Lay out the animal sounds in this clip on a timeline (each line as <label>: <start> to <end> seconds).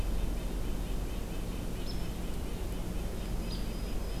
Hairy Woodpecker (Dryobates villosus): 0.0 to 4.2 seconds
Red-breasted Nuthatch (Sitta canadensis): 0.0 to 4.2 seconds
Black-throated Green Warbler (Setophaga virens): 3.0 to 4.2 seconds